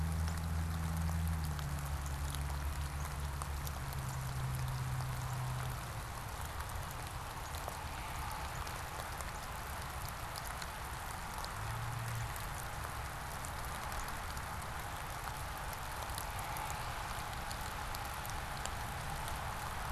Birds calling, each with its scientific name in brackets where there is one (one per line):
Northern Cardinal (Cardinalis cardinalis)